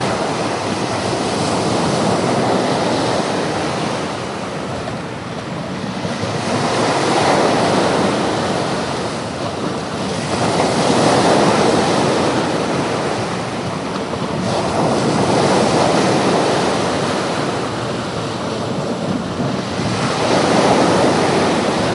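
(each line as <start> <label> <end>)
0.0 Waves repeatedly crash against stones at the shore. 21.9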